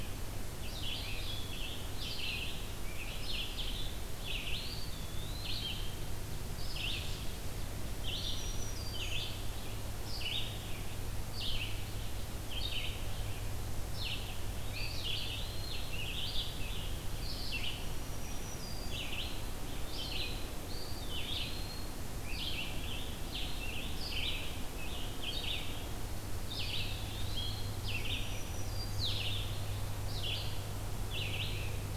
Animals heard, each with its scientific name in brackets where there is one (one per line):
Eastern Wood-Pewee (Contopus virens)
Black-throated Green Warbler (Setophaga virens)
Red-eyed Vireo (Vireo olivaceus)
Scarlet Tanager (Piranga olivacea)